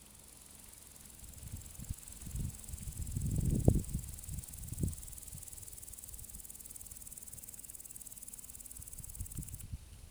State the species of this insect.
Omocestus rufipes